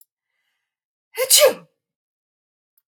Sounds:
Sneeze